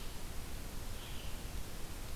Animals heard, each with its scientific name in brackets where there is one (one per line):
Red-eyed Vireo (Vireo olivaceus)